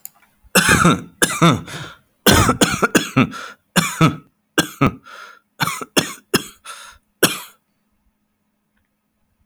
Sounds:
Cough